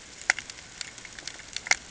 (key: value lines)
label: ambient
recorder: HydroMoth